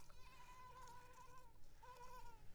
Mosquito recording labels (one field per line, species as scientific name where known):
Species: Mansonia uniformis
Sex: female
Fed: unfed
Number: one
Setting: cup